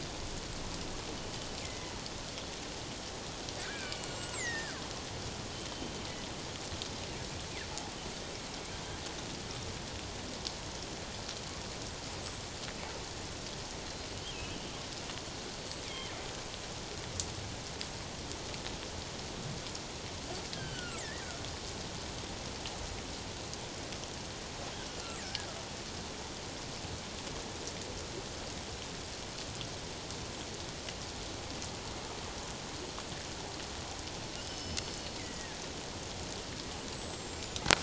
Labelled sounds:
1.6	1.9	killer whale, northern resident, G clan, 1.9 to 2.2 kHz
3.6	4.8	killer whale, northern resident, G clan, 1.3 to 8.0 kHz
12.2	12.5	killer whale, northern resident, G clan, 7.2 to 8.0 kHz
14.3	14.6	killer whale, northern resident, G clan, 2.5 to 2.9 kHz
15.5	16.1	killer whale, northern resident, G clan, 2.0 to 7.9 kHz
20.5	21.2	killer whale, northern resident, G clan, 1.2 to 3.3 kHz
24.9	25.5	killer whale, northern resident, G clan, 1.5 to 3.0 kHz
34.4	35.6	killer whale, northern resident, G clan, 1.6 to 5.3 kHz
36.8	37.6	killer whale, northern resident, G clan, 6.9 to 8.0 kHz

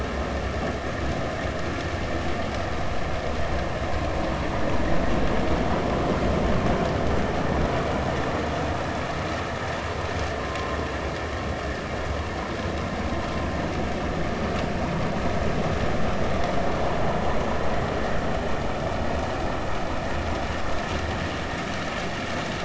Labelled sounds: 10.4	10.8	vessel noise, 0.99 to 1.1 kHz

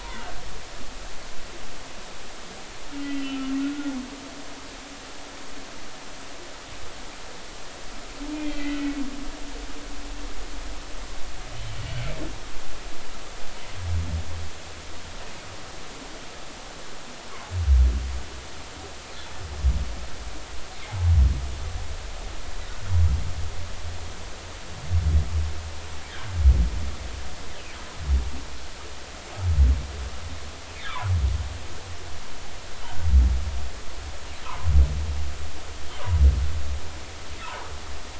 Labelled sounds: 0.0	0.3	humpback whale, 0.86 to 1.1 kHz
3.0	3.9	humpback whale, 1.3 to 3.2 kHz
8.3	9.0	humpback whale, 2.2 to 2.6 kHz

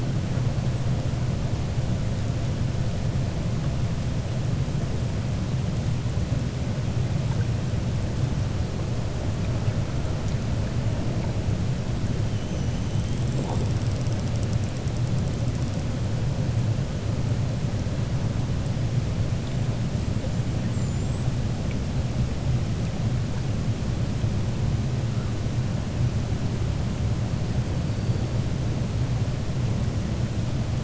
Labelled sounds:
20.6	21.4	killer whale, 7.0 to 8.0 kHz

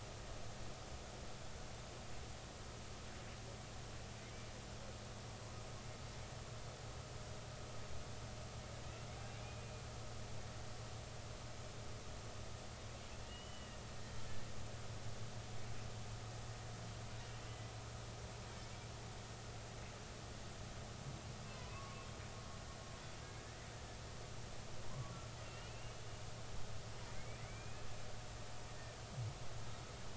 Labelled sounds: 9.4	9.6	humpback whale, 2.2 to 2.5 kHz
13.3	13.8	humpback whale, 2.8 to 3.1 kHz
17.5	17.7	humpback whale, 1.95 to 2.05 kHz
21.5	22.0	humpback whale, 0.93 to 1.2 kHz
23.2	23.6	humpback whale, 1.6 to 2.0 kHz
25.4	26.0	humpback whale, 2.6 to 2.9 kHz
27.2	27.8	humpback whale, 1.9 to 2.6 kHz

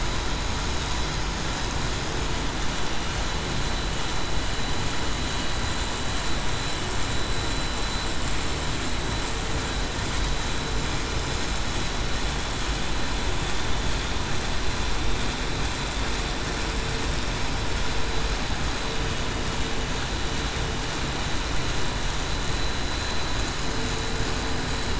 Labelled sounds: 22.8	23.2	vessel noise, 3.9 to 4.0 kHz

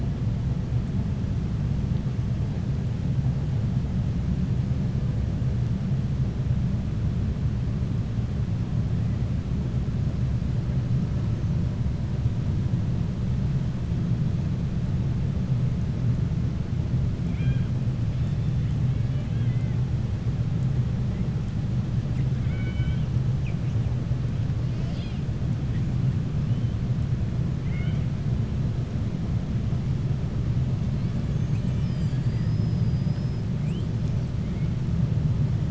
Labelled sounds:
17.2	17.7	killer whale, 1.5 to 4.0 kHz
19.0	19.7	killer whale, 1.6 to 3.5 kHz
22.3	23.1	killer whale, 1.4 to 3.8 kHz
27.6	28.0	killer whale, 1.4 to 3.6 kHz

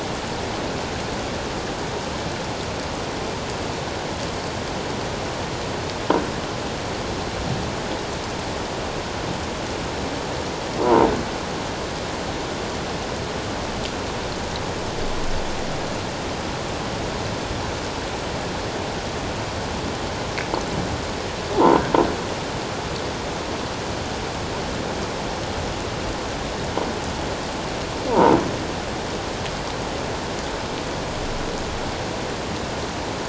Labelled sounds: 10.8	11.1	croaking sound likely from a nearby submerged object, 0.88 to 1.1 kHz
21.5	21.8	croaking sound likely from a nearby submerged object, 0.78 to 1.1 kHz
28.1	28.4	croaking sound likely from a nearby submerged object, 0.81 to 1.1 kHz

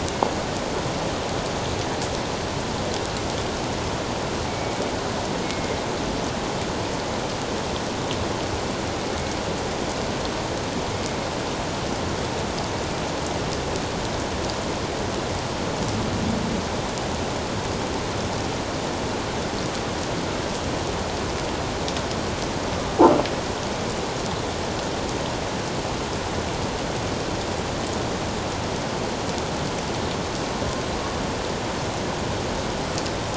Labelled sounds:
4.5	5.8	killer whale, northern resident, G clan, 2.0 to 2.4 kHz

